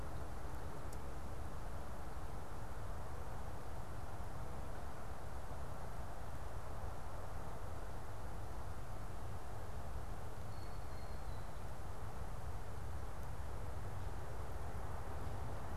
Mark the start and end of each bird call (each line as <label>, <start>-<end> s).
Blue Jay (Cyanocitta cristata), 10.3-11.3 s